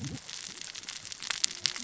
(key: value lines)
label: biophony, cascading saw
recorder: SoundTrap 600 or HydroMoth